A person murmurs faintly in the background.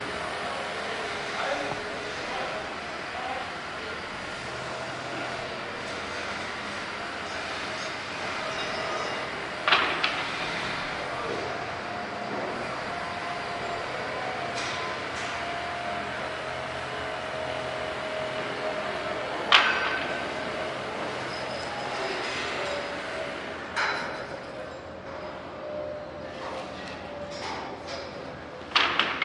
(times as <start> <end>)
1.2 3.9